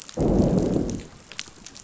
{"label": "biophony, growl", "recorder": "SoundTrap 500"}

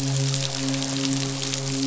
{"label": "biophony, midshipman", "recorder": "SoundTrap 500"}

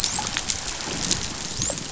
{"label": "biophony, dolphin", "recorder": "SoundTrap 500"}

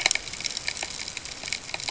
{"label": "ambient", "recorder": "HydroMoth"}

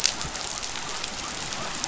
{"label": "biophony", "recorder": "SoundTrap 500"}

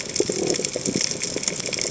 {"label": "biophony", "recorder": "HydroMoth"}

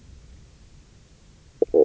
{"label": "biophony, knock croak", "recorder": "SoundTrap 300"}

